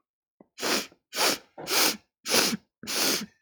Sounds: Sniff